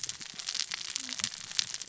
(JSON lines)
{"label": "biophony, cascading saw", "recorder": "SoundTrap 600 or HydroMoth"}